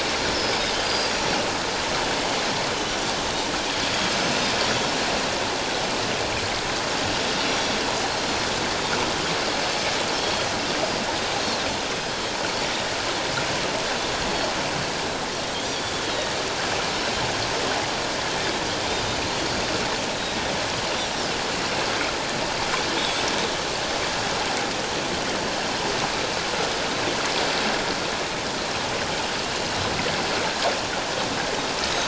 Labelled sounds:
0.3	1.4	Pacific white-sided dolphin, 4.7 to 5.8 kHz
7.5	7.8	Pacific white-sided dolphin, 5.6 to 5.8 kHz
10.1	10.5	Pacific white-sided dolphin, 3.2 to 3.4 kHz
20.1	20.4	Pacific white-sided dolphin, 3.7 to 3.9 kHz

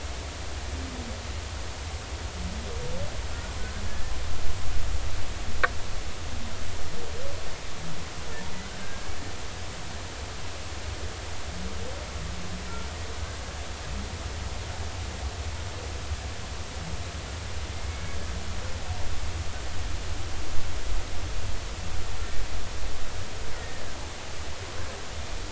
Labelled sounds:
3.8	4.1	killer whale, Bigg's (transient), 1.7 to 1.8 kHz
8.8	9.1	killer whale, Bigg's (transient), 1.5 to 1.7 kHz
17.7	18.2	killer whale, Bigg's (transient), 2.1 to 2.3 kHz
23.5	24.0	killer whale, Bigg's (transient), 1.5 to 2.0 kHz

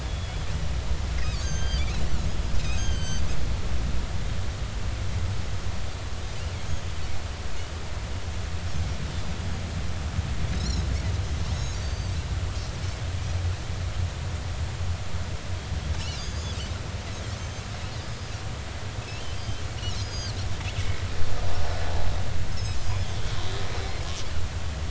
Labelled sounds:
0.0	0.5	Pacific white-sided dolphin, 3.3 to 3.6 kHz
1.4	2.0	Pacific white-sided dolphin, 1.5 to 8.0 kHz
2.7	3.2	Pacific white-sided dolphin, 1.5 to 6.5 kHz
10.5	12.1	Pacific white-sided dolphin, 3.7 to 8.0 kHz
16.2	16.6	Pacific white-sided dolphin, 4.6 to 6.9 kHz
17.3	18.3	Pacific white-sided dolphin, 4.8 to 6.4 kHz
19.0	19.6	Pacific white-sided dolphin, 2.5 to 3.2 kHz
20.0	20.4	Pacific white-sided dolphin, 4.1 to 6.7 kHz
22.9	23.2	Pacific white-sided dolphin, 3.1 to 3.5 kHz

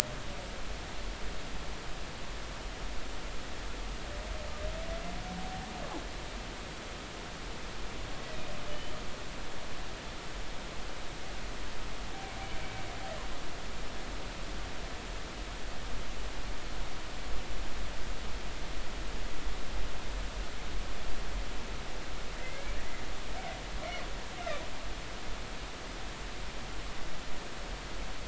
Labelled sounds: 8.7	9.0	humpback whale, 2.8 to 3.1 kHz
22.4	22.8	humpback whale, 2.0 to 2.4 kHz

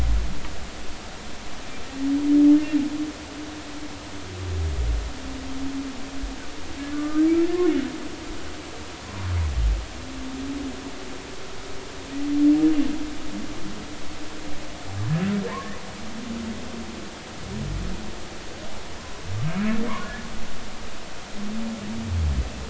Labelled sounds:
6.9	7.3	humpback whale, 1.1 to 1.3 kHz
15.5	15.7	humpback whale, 0.86 to 1.2 kHz

